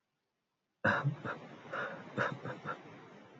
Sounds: Sigh